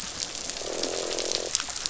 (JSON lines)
{"label": "biophony, croak", "recorder": "SoundTrap 500"}